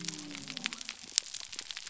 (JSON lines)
{"label": "biophony", "recorder": "SoundTrap 300"}